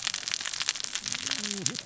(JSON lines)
{"label": "biophony, cascading saw", "recorder": "SoundTrap 600 or HydroMoth"}